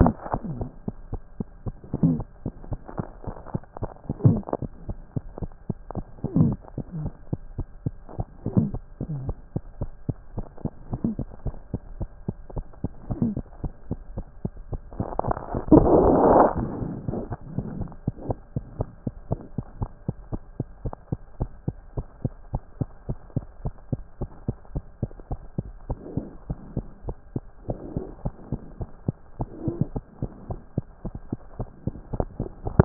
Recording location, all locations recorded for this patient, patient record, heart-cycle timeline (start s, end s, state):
aortic valve (AV)
aortic valve (AV)+mitral valve (MV)
#Age: Infant
#Sex: Male
#Height: nan
#Weight: 8.0 kg
#Pregnancy status: False
#Murmur: Absent
#Murmur locations: nan
#Most audible location: nan
#Systolic murmur timing: nan
#Systolic murmur shape: nan
#Systolic murmur grading: nan
#Systolic murmur pitch: nan
#Systolic murmur quality: nan
#Diastolic murmur timing: nan
#Diastolic murmur shape: nan
#Diastolic murmur grading: nan
#Diastolic murmur pitch: nan
#Diastolic murmur quality: nan
#Outcome: Abnormal
#Campaign: 2014 screening campaign
0.00	19.17	unannotated
19.17	19.30	diastole
19.30	19.42	S1
19.42	19.56	systole
19.56	19.62	S2
19.62	19.80	diastole
19.80	19.90	S1
19.90	20.06	systole
20.06	20.16	S2
20.16	20.32	diastole
20.32	20.42	S1
20.42	20.58	systole
20.58	20.66	S2
20.66	20.84	diastole
20.84	20.94	S1
20.94	21.10	systole
21.10	21.20	S2
21.20	21.40	diastole
21.40	21.50	S1
21.50	21.66	systole
21.66	21.76	S2
21.76	21.96	diastole
21.96	22.06	S1
22.06	22.24	systole
22.24	22.32	S2
22.32	22.52	diastole
22.52	22.64	S1
22.64	22.80	systole
22.80	22.88	S2
22.88	23.08	diastole
23.08	23.18	S1
23.18	23.34	systole
23.34	23.44	S2
23.44	23.64	diastole
23.64	23.74	S1
23.74	23.92	systole
23.92	24.02	S2
24.02	24.20	diastole
24.20	24.32	S1
24.32	24.46	systole
24.46	24.56	S2
24.56	24.74	diastole
24.74	24.86	S1
24.86	25.02	systole
25.02	25.10	S2
25.10	25.30	diastole
25.30	25.42	S1
25.42	25.58	systole
25.58	25.66	S2
25.66	25.88	diastole
25.88	26.00	S1
26.00	26.16	systole
26.16	26.26	S2
26.26	26.48	diastole
26.48	26.60	S1
26.60	26.76	systole
26.76	26.86	S2
26.86	27.06	diastole
27.06	27.16	S1
27.16	27.34	systole
27.34	27.44	S2
27.44	27.68	diastole
27.68	27.78	S1
27.78	27.96	systole
27.96	28.04	S2
28.04	28.24	diastole
28.24	28.36	S1
28.36	28.50	systole
28.50	28.60	S2
28.60	28.80	diastole
28.80	28.90	S1
28.90	29.06	systole
29.06	29.16	S2
29.16	29.40	diastole
29.40	32.85	unannotated